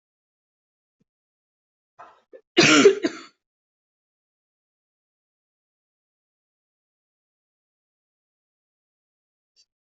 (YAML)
expert_labels:
- quality: good
  cough_type: unknown
  dyspnea: false
  wheezing: false
  stridor: false
  choking: false
  congestion: false
  nothing: true
  diagnosis: lower respiratory tract infection
  severity: mild
age: 30
gender: female
respiratory_condition: false
fever_muscle_pain: false
status: healthy